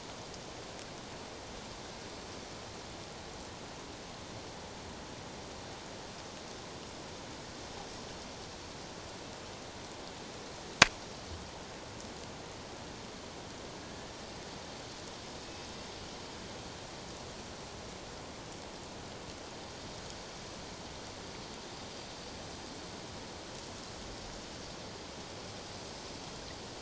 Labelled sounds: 13.8	14.1	killer whale, Bigg's (transient), 1.6 to 1.8 kHz
15.4	15.7	killer whale, Bigg's (transient), 2.5 to 2.7 kHz

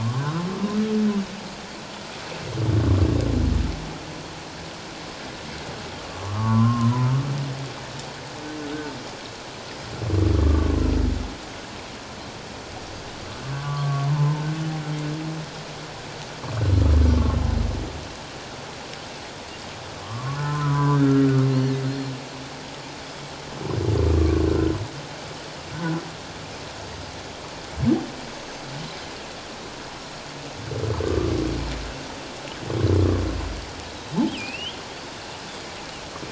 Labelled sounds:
0.0	0.4	humpback whale, 0.97 to 1.6 kHz
6.1	7.1	humpback whale, 0.84 to 1.3 kHz
10.4	10.8	humpback whale, 1.0 to 1.2 kHz
13.6	14.4	humpback whale, 0.81 to 1.2 kHz
20.0	21.3	humpback whale, 0.94 to 1.6 kHz
21.5	22.1	Pacific white-sided dolphin, 4.0 to 4.5 kHz
24.2	24.7	humpback whale, 1.1 to 1.6 kHz
31.0	31.3	humpback whale, 1.1 to 1.2 kHz
34.3	34.8	humpback whale, 2.3 to 3.5 kHz

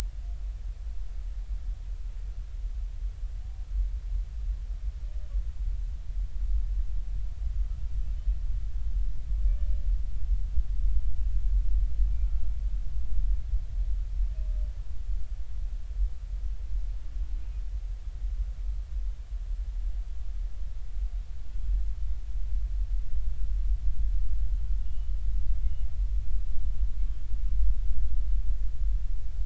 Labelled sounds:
24.8	25.2	humpback whale, 2.8 to 3.1 kHz

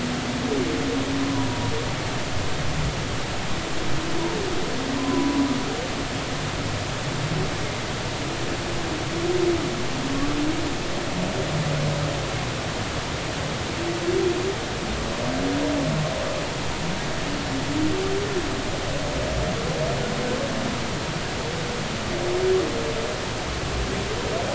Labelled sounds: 1.3	1.7	humpback whale, 0.93 to 1.0 kHz
5.0	5.4	humpback whale, 0.93 to 1.1 kHz

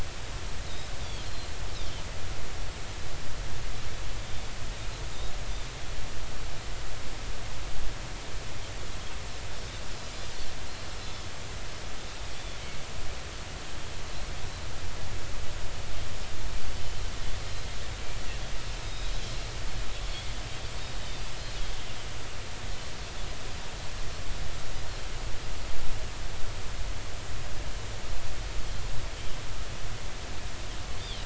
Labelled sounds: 1.0	1.5	Pacific white-sided dolphin, 3.1 to 4.3 kHz
4.2	4.5	Pacific white-sided dolphin, 3.5 to 3.6 kHz
12.3	12.6	Pacific white-sided dolphin, 3.3 to 3.6 kHz
18.8	19.1	Pacific white-sided dolphin, 3.7 to 3.9 kHz
21.0	21.3	Pacific white-sided dolphin, 4.6 to 5.0 kHz
31.0	31.2	Pacific white-sided dolphin, 2.8 to 3.7 kHz

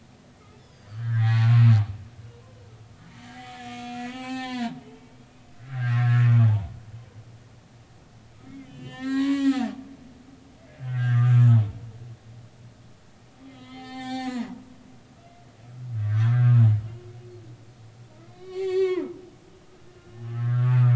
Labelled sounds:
0.5	1.4	humpback whale, 1.1 to 5.4 kHz
3.5	5.0	humpback whale, 0.80 to 7.8 kHz
5.6	6.7	humpback whale, 0.80 to 2.0 kHz
8.5	9.7	humpback whale, 0.96 to 7.1 kHz
10.8	11.3	humpback whale, 1.1 to 2.0 kHz
13.5	14.6	humpback whale, 0.80 to 7.9 kHz
16.0	16.7	humpback whale, 0.99 to 2.0 kHz
18.2	19.1	humpback whale, 0.90 to 7.3 kHz
19.9	20.7	humpback whale, 1.3 to 2.9 kHz

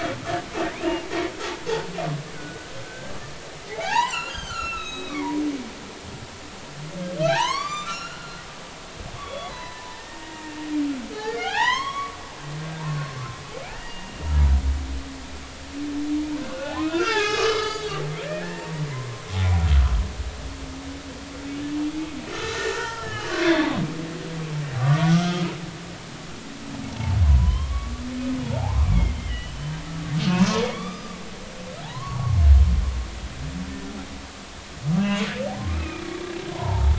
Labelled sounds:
0.6	1.1	humpback whale, 1.8 to 2.9 kHz
2.3	3.1	humpback whale, 1.4 to 1.6 kHz
3.7	5.4	humpback whale, 0.80 to 7.1 kHz
7.3	8.5	humpback whale, 0.80 to 6.9 kHz
9.2	10.6	humpback whale, 0.86 to 4.1 kHz
11.1	12.2	humpback whale, 0.80 to 5.7 kHz
12.6	14.4	humpback whale, 1.5 to 2.9 kHz
16.4	19.2	humpback whale, 0.86 to 5.0 kHz
22.3	25.4	humpback whale, 0.83 to 3.4 kHz
26.9	29.7	humpback whale, 0.80 to 3.3 kHz
30.2	31.2	humpback whale, 1.1 to 5.0 kHz
31.8	32.4	humpback whale, 0.80 to 1.2 kHz
35.0	35.3	humpback whale, 3.2 to 3.3 kHz
35.7	36.9	humpback whale, 0.83 to 2.6 kHz

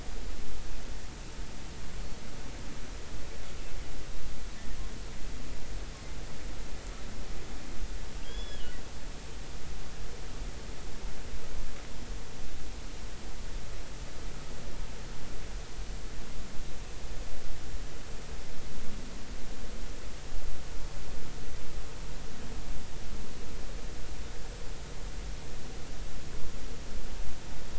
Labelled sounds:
8.2	8.8	killer whale, offshore, 2.8 to 5.2 kHz

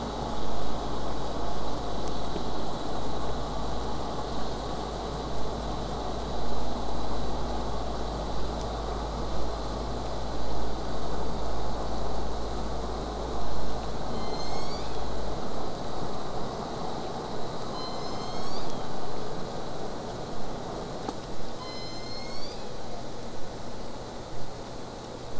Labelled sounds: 14.1	15.1	killer whale, southern resident, J pod, call S01, 1.9 to 8.0 kHz
17.7	19.0	killer whale, southern resident, J pod, call S01, 0.88 to 8.0 kHz
21.6	23.1	killer whale, southern resident, J pod, call S01, 0.46 to 8.0 kHz

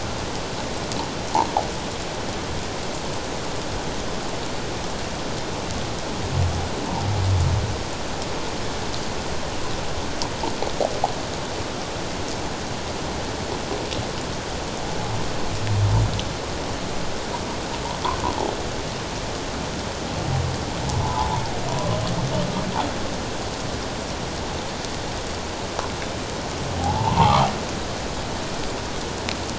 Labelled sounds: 21.0	21.3	humpback whale, 0.81 to 1.1 kHz
26.7	27.5	humpback whale, 0.78 to 1.3 kHz

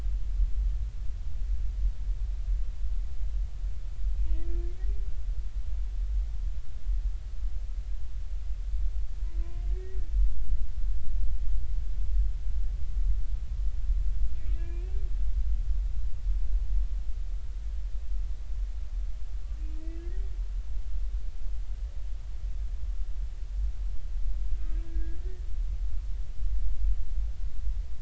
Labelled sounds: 4.2	4.4	humpback whale, 2.4 to 2.6 kHz
9.4	10.0	humpback whale, 0.96 to 2.0 kHz
14.4	15.0	humpback whale, 0.96 to 2.8 kHz
19.8	20.3	humpback whale, 1.6 to 2.8 kHz
24.5	25.4	humpback whale, 1.5 to 1.9 kHz

